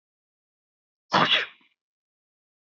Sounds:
Sneeze